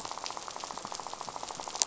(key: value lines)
label: biophony, rattle
recorder: SoundTrap 500